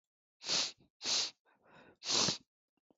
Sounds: Sniff